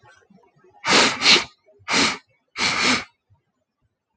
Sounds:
Sniff